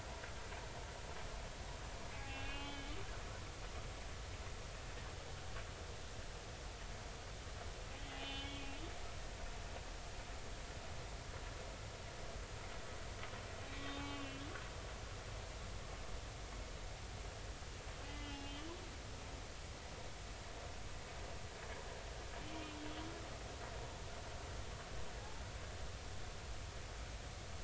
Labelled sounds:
2.1	2.9	humpback whale, 0.80 to 3.5 kHz
8.2	8.8	humpback whale, 2.4 to 3.6 kHz
13.9	14.5	humpback whale, 2.4 to 3.5 kHz
18.1	18.7	humpback whale, 2.0 to 3.1 kHz
22.5	22.8	humpback whale, 3.0 to 3.3 kHz
25.2	25.4	humpback whale, 0.80 to 0.93 kHz

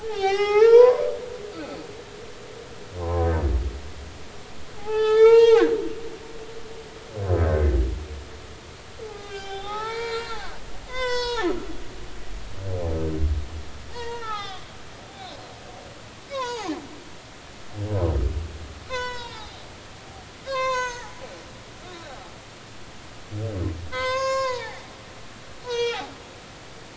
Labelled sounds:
0.1	1.1	humpback whale, 0.80 to 6.2 kHz
3.0	3.3	humpback whale, 0.93 to 1.1 kHz
4.8	5.7	humpback whale, 0.80 to 6.9 kHz
7.3	7.7	humpback whale, 1.5 to 1.7 kHz
9.0	10.4	humpback whale, 0.80 to 6.0 kHz
10.9	11.5	humpback whale, 0.80 to 7.7 kHz
13.9	14.6	humpback whale, 0.80 to 3.9 kHz
16.3	16.7	humpback whale, 0.80 to 6.9 kHz
18.9	19.6	humpback whale, 0.80 to 7.6 kHz
20.4	21.2	humpback whale, 0.80 to 6.9 kHz
22.1	22.3	humpback whale, 0.80 to 0.90 kHz
23.9	24.8	humpback whale, 0.80 to 7.0 kHz
25.6	26.9	humpback whale, 0.80 to 6.7 kHz

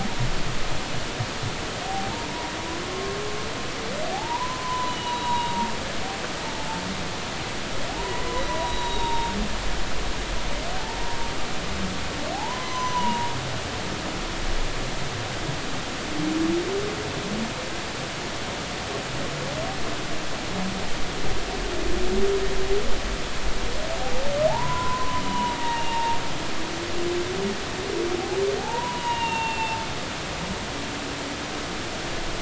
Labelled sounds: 1.9	2.6	humpback whale, 0.80 to 1.1 kHz
2.8	3.2	humpback whale, 1.0 to 1.1 kHz
4.1	5.7	humpback whale, 0.80 to 4.0 kHz
6.6	6.8	humpback whale, 0.83 to 0.93 kHz
7.9	9.3	humpback whale, 0.80 to 3.9 kHz
12.3	13.3	humpback whale, 0.80 to 6.1 kHz
24.5	26.2	humpback whale, 0.80 to 3.0 kHz
28.6	29.8	humpback whale, 0.80 to 3.9 kHz

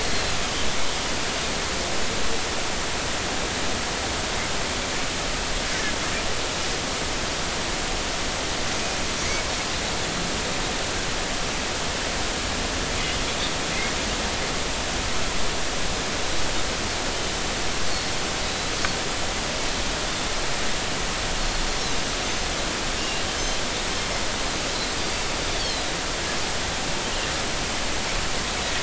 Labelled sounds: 0.1	0.7	Pacific white-sided dolphin, 3.0 to 4.4 kHz
18.4	18.7	Pacific white-sided dolphin, 3.8 to 4.0 kHz
23.0	23.2	Pacific white-sided dolphin, 2.7 to 2.9 kHz
25.0	25.2	Pacific white-sided dolphin, 4.6 to 4.9 kHz
25.5	25.9	Pacific white-sided dolphin, 3.0 to 4.6 kHz

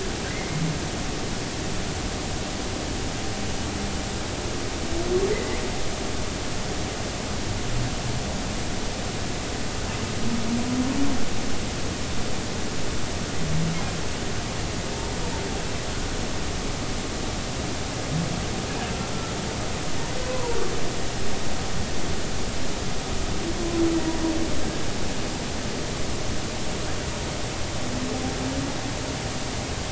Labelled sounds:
0.3	0.6	humpback whale, 2.0 to 2.2 kHz
5.3	5.6	humpback whale, 1.9 to 2.2 kHz
20.2	20.6	humpback whale, 0.90 to 1.1 kHz

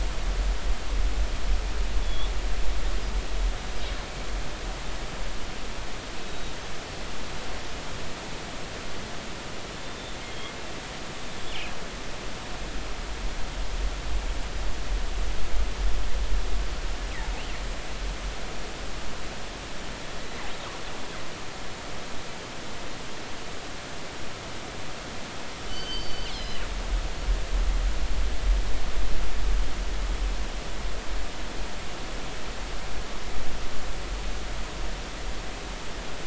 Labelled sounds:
2.0	2.3	killer whale, northern resident, G clan, 3.2 to 3.8 kHz
6.3	6.5	killer whale, northern resident, G clan, 3.7 to 3.9 kHz
10.3	10.5	killer whale, northern resident, G clan, 3.2 to 3.5 kHz
25.7	26.6	killer whale, northern resident, G clan, 2.7 to 5.3 kHz

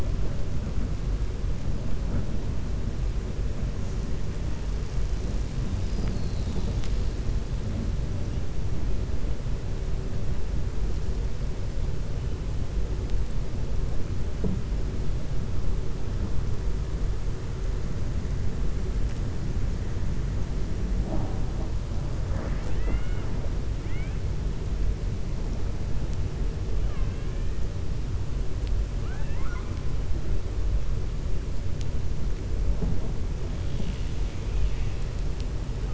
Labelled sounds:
28.9	29.8	killer whale, 0.73 to 2.7 kHz

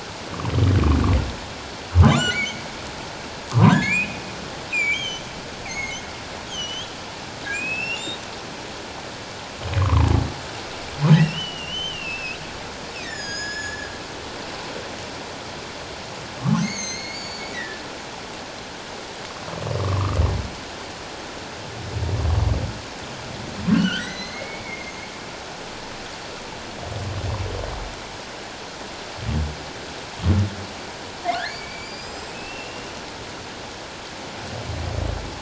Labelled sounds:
2.0	2.6	humpback whale, 0.97 to 4.6 kHz
3.5	4.2	humpback whale, 0.91 to 3.5 kHz
4.7	6.0	humpback whale, 2.0 to 6.7 kHz
6.5	6.9	humpback whale, 2.8 to 6.8 kHz
7.5	8.1	humpback whale, 2.2 to 5.7 kHz
9.8	10.1	humpback whale, 0.81 to 1.4 kHz
11.2	12.4	humpback whale, 2.5 to 3.2 kHz
13.0	14.0	humpback whale, 1.6 to 7.4 kHz
16.5	17.8	humpback whale, 1.7 to 6.9 kHz
19.8	20.2	humpback whale, 0.94 to 1.3 kHz
23.7	25.0	humpback whale, 1.3 to 6.5 kHz
31.4	32.9	humpback whale, 1.4 to 7.7 kHz

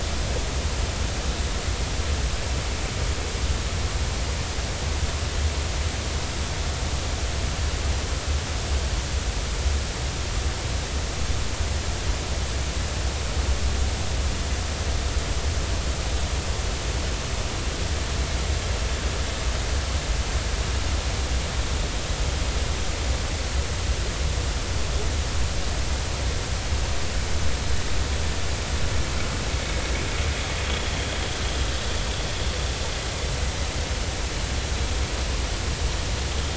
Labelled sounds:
30.7	30.9	vessel noise, 3.2 to 3.5 kHz

